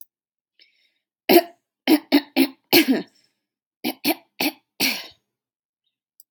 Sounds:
Throat clearing